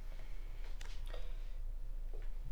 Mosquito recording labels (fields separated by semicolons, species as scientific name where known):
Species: Anopheles arabiensis; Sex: female; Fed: unfed; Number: one; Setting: cup